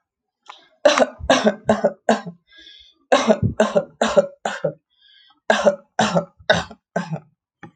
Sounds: Cough